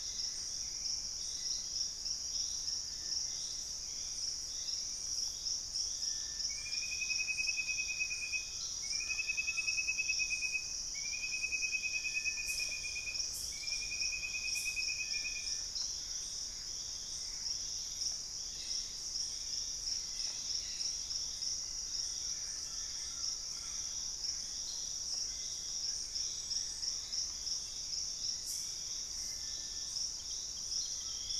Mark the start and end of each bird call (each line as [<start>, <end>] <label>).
[0.00, 1.41] Gray Antbird (Cercomacra cinerascens)
[0.00, 6.11] Hauxwell's Thrush (Turdus hauxwelli)
[0.00, 31.40] Little Tinamou (Crypturellus soui)
[6.61, 8.11] Purple-throated Fruitcrow (Querula purpurata)
[8.41, 10.11] Collared Trogon (Trogon collaris)
[15.91, 17.81] Gray Antbird (Cercomacra cinerascens)
[17.41, 24.71] Hauxwell's Thrush (Turdus hauxwelli)
[19.91, 21.21] Cobalt-winged Parakeet (Brotogeris cyanoptera)
[21.71, 24.11] Collared Trogon (Trogon collaris)
[24.31, 27.01] Purple-throated Fruitcrow (Querula purpurata)
[25.21, 26.61] unidentified bird
[26.71, 31.40] Hauxwell's Thrush (Turdus hauxwelli)